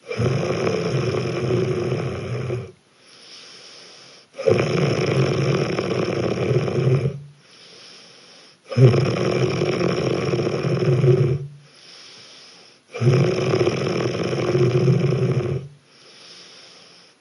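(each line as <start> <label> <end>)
0.1 Steady, heavy snoring of a person. 2.7
2.7 A person breathing steadily in a quiet room. 4.4
4.4 Steady, heavy snoring of a person. 7.3
7.2 A person breathing steadily in a quiet room. 8.7
8.7 Steady, heavy snoring of a person. 11.5
11.4 A person breathing steadily in a quiet room. 12.9
12.9 Steady, heavy snoring of a person. 15.7
15.7 A person breathing steadily in a quiet room. 17.2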